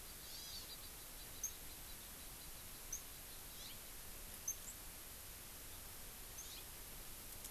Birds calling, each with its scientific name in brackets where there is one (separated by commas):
Hawaii Amakihi (Chlorodrepanis virens)